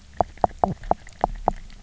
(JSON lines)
{"label": "biophony, knock croak", "recorder": "SoundTrap 300"}